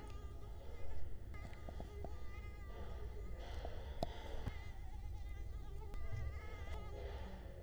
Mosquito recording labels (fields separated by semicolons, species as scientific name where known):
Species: Culex quinquefasciatus; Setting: cup